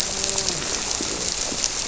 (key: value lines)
label: biophony
recorder: SoundTrap 300

label: biophony, grouper
recorder: SoundTrap 300